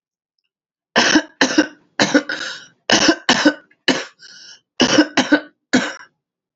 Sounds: Cough